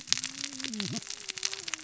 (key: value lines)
label: biophony, cascading saw
recorder: SoundTrap 600 or HydroMoth